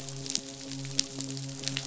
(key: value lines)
label: biophony, midshipman
recorder: SoundTrap 500